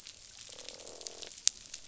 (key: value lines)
label: biophony, croak
recorder: SoundTrap 500